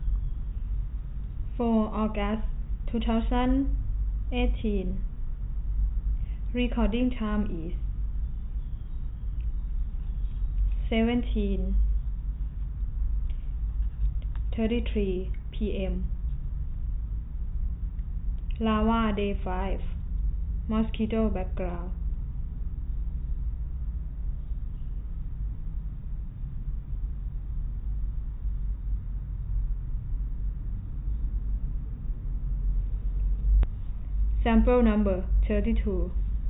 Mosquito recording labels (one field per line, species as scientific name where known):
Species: no mosquito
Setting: cup